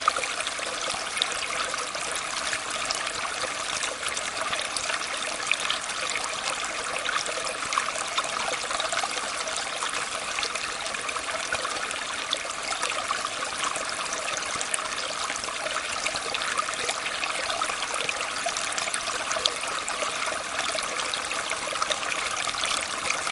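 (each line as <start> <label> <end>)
0.0 Water flowing and splashing quietly and continuously. 23.3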